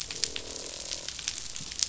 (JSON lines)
{"label": "biophony, croak", "recorder": "SoundTrap 500"}